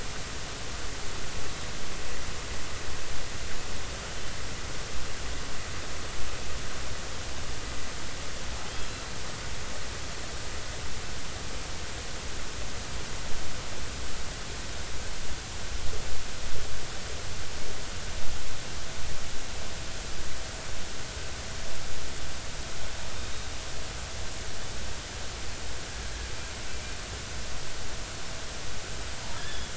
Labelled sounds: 8.7	9.1	killer whale, offshore, 3.1 to 4.1 kHz
26.7	27.0	killer whale, offshore, 2.3 to 2.5 kHz
29.4	29.7	killer whale, offshore, 3.2 to 3.6 kHz

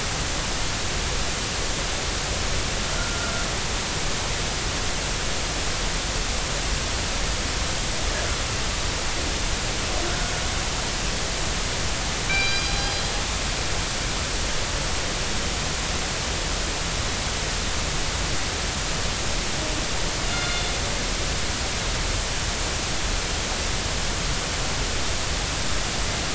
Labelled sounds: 3.0	3.3	killer whale, northern resident, G clan, 1.3 to 1.5 kHz
12.3	12.9	killer whale, northern resident, G clan, 1.5 to 4.9 kHz
20.2	20.7	killer whale, northern resident, G clan, 1.3 to 4.3 kHz

